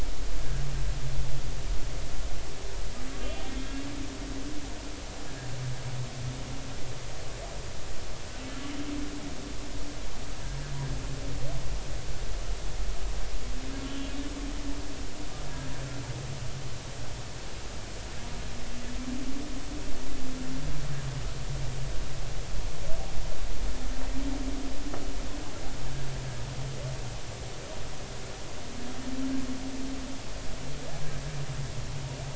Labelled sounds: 13.8	14.1	humpback whale, 3.0 to 3.1 kHz

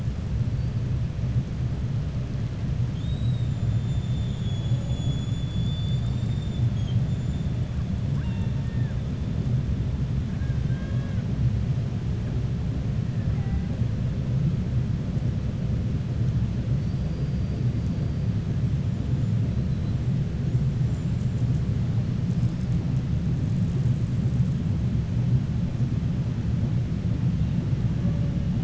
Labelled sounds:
2.8	3.5	killer whale, 3.1 to 3.9 kHz
8.1	9.0	killer whale, 0.89 to 3.7 kHz
10.3	11.2	killer whale, 1.0 to 3.9 kHz
20.8	21.6	killer whale, 5.9 to 8.0 kHz

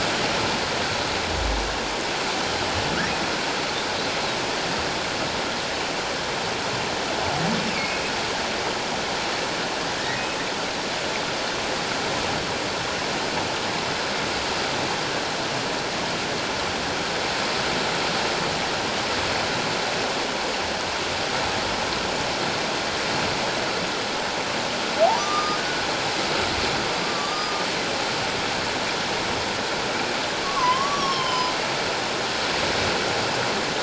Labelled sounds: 7.8	8.1	humpback whale, 2.1 to 2.6 kHz
10.0	10.3	humpback whale, 1.8 to 2.1 kHz
25.2	25.8	humpback whale, 1.1 to 3.7 kHz
27.0	27.6	humpback whale, 1.1 to 5.0 kHz
30.4	31.5	humpback whale, 0.94 to 5.8 kHz

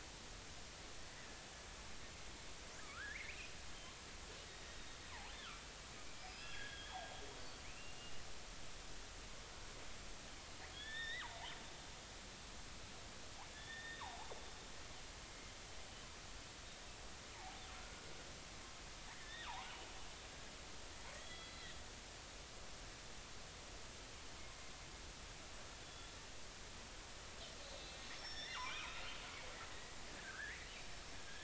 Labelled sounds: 2.8	3.5	killer whale, northern resident, 1.1 to 2.8 kHz
6.0	7.0	killer whale, northern resident, 1.6 to 5.1 kHz
7.6	8.1	killer whale, northern resident, 2.0 to 2.9 kHz
10.7	11.3	killer whale, northern resident, 1.4 to 5.5 kHz
13.5	14.1	killer whale, northern resident, 1.7 to 3.8 kHz
15.3	15.6	killer whale, northern resident, 2.0 to 2.2 kHz
17.7	18.0	killer whale, northern resident, 1.3 to 1.5 kHz
19.1	19.7	killer whale, northern resident, 0.80 to 3.8 kHz
21.2	21.7	killer whale, northern resident, 1.8 to 4.1 kHz
25.8	26.1	killer whale, northern resident, 3.3 to 3.5 kHz
27.7	29.0	killer whale, northern resident, 0.86 to 5.8 kHz
30.2	30.6	killer whale, northern resident, 1.2 to 2.3 kHz

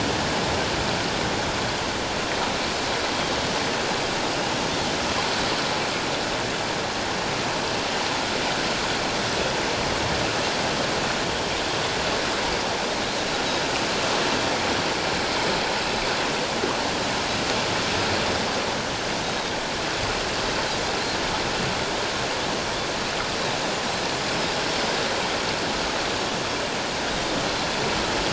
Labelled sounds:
19.2	19.5	Pacific white-sided dolphin, 3.6 to 3.9 kHz

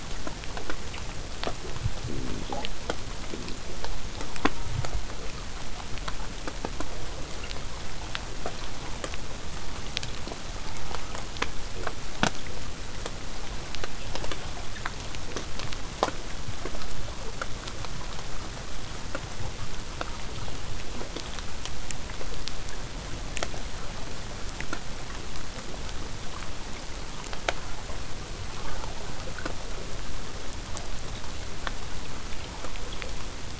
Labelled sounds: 4.4	5.1	killer whale, southern resident, J pod, call S04, 0.19 to 1.5 kHz
10.6	11.3	killer whale, southern resident, J pod, call S04, 0.70 to 2.4 kHz
18.6	23.6	vessel noise, 0 to 8.0 kHz

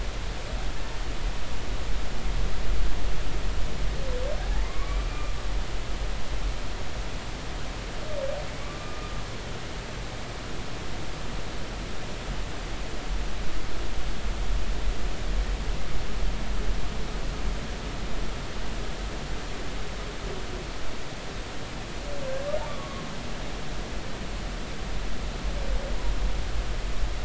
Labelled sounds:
4.4	5.3	humpback whale, 0.80 to 2.5 kHz
8.8	9.1	humpback whale, 1.1 to 1.3 kHz
22.7	23.1	humpback whale, 1.0 to 1.2 kHz

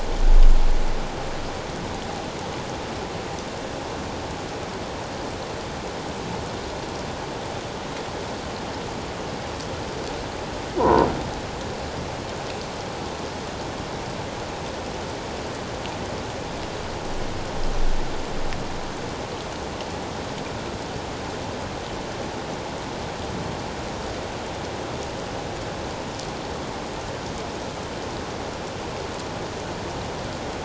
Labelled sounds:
10.8	11.1	croaking sound likely from a nearby submerged object, 0.88 to 1.1 kHz

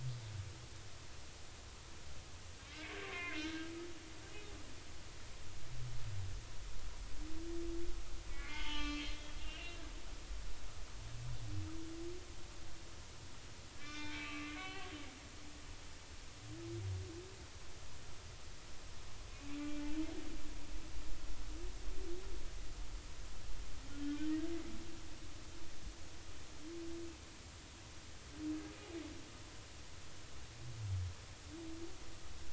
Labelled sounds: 2.7	3.7	humpback whale, 0.99 to 4.0 kHz
8.3	9.9	humpback whale, 0.83 to 5.4 kHz
13.8	14.9	humpback whale, 1.1 to 5.5 kHz
24.0	24.3	humpback whale, 1.4 to 1.6 kHz

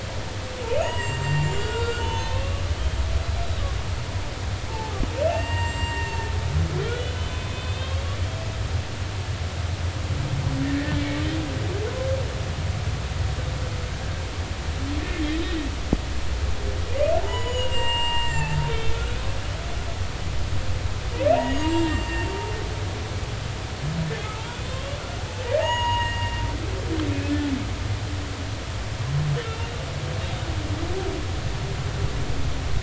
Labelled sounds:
0.7	2.6	humpback whale, 0.86 to 7.8 kHz
4.7	6.2	humpback whale, 0.80 to 7.6 kHz
6.8	8.1	humpback whale, 1.8 to 3.9 kHz
10.7	11.2	humpback whale, 1.7 to 2.3 kHz
17.2	19.2	humpback whale, 0.80 to 7.6 kHz
21.3	22.3	humpback whale, 0.86 to 7.6 kHz
24.7	26.4	humpback whale, 0.83 to 6.8 kHz
27.2	27.5	humpback whale, 1.7 to 1.8 kHz
29.4	29.8	humpback whale, 2.7 to 3.8 kHz

